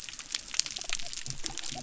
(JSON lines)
{"label": "biophony", "recorder": "SoundTrap 300"}